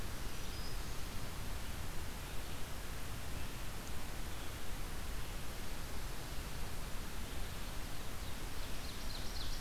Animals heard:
Ovenbird (Seiurus aurocapilla)
Black-throated Green Warbler (Setophaga virens)

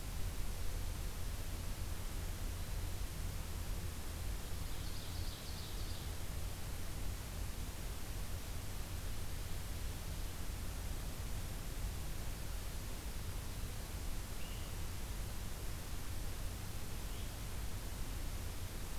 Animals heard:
unidentified call
Ovenbird (Seiurus aurocapilla)

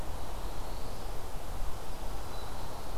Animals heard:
Black-throated Blue Warbler (Setophaga caerulescens)

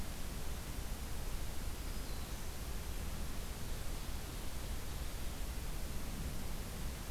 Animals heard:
Black-throated Green Warbler (Setophaga virens)

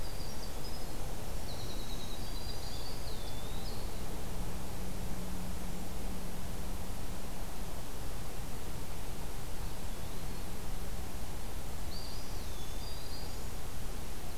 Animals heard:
Black-throated Green Warbler (Setophaga virens)
Winter Wren (Troglodytes hiemalis)
Eastern Wood-Pewee (Contopus virens)

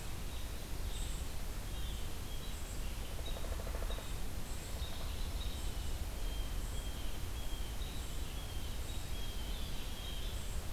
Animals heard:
Dark-eyed Junco (Junco hyemalis)
unidentified call
Blue Jay (Cyanocitta cristata)
Downy Woodpecker (Dryobates pubescens)
Red-eyed Vireo (Vireo olivaceus)

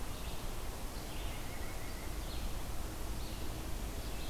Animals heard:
White-breasted Nuthatch (Sitta carolinensis)
Red-eyed Vireo (Vireo olivaceus)

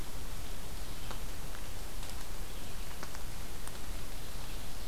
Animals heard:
Ovenbird (Seiurus aurocapilla)
Red-eyed Vireo (Vireo olivaceus)

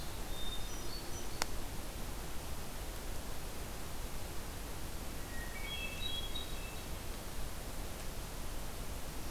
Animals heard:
Hermit Thrush (Catharus guttatus)

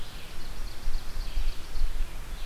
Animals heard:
Ovenbird (Seiurus aurocapilla)
Red-eyed Vireo (Vireo olivaceus)

